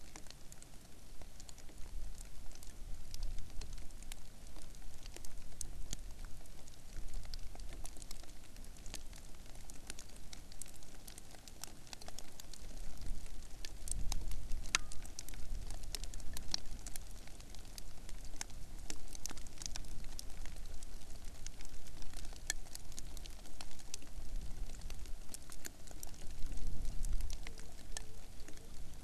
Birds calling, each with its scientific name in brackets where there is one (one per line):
Hawaiian Petrel (Pterodroma sandwichensis)